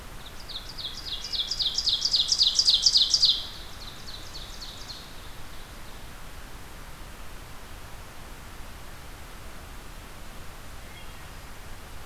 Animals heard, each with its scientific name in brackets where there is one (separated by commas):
Blackburnian Warbler (Setophaga fusca), Ovenbird (Seiurus aurocapilla), Wood Thrush (Hylocichla mustelina)